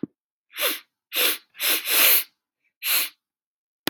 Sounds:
Sniff